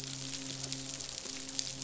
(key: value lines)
label: biophony, midshipman
recorder: SoundTrap 500